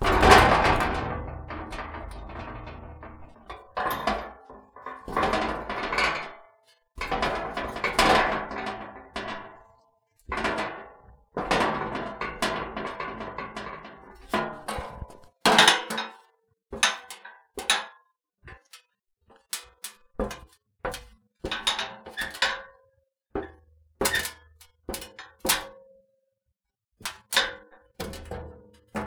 Does the object that shakes and vibrates seem to be thin?
yes